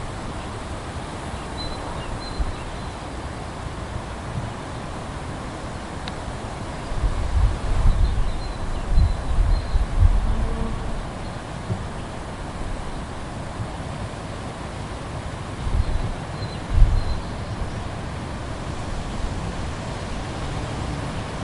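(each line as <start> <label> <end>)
1.5 A bird chirps rhythmically and repeatedly. 3.4
1.5 A steady wind is blowing. 3.4
7.2 A steady wind is blowing. 10.2
7.2 Bird chirping rhythmically and repeatedly. 10.2
15.3 A bird chirps rhythmically and repeatedly. 17.4
15.3 A steady wind is blowing. 17.4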